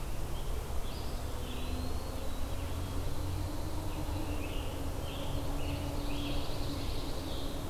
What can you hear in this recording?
Eastern Wood-Pewee, Scarlet Tanager, Pine Warbler